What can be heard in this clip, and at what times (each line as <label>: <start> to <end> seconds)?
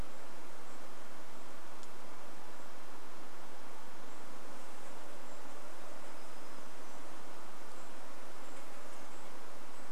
Golden-crowned Kinglet call: 0 to 10 seconds
insect buzz: 4 to 10 seconds
warbler song: 6 to 8 seconds